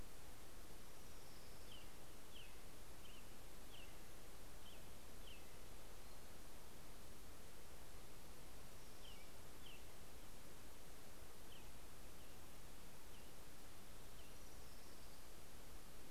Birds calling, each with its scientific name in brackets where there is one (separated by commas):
Orange-crowned Warbler (Leiothlypis celata), American Robin (Turdus migratorius)